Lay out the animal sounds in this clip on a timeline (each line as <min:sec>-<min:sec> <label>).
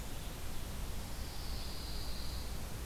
0:00.0-0:02.9 Black-capped Chickadee (Poecile atricapillus)
0:00.0-0:02.9 Red-eyed Vireo (Vireo olivaceus)
0:00.8-0:02.6 Pine Warbler (Setophaga pinus)